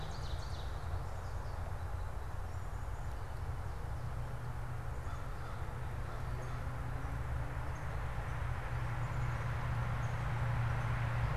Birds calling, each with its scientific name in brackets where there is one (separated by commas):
American Crow (Corvus brachyrhynchos), unidentified bird, Ovenbird (Seiurus aurocapilla)